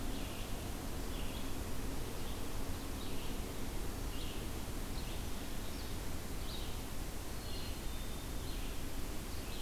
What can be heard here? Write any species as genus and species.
Vireo olivaceus, Poecile atricapillus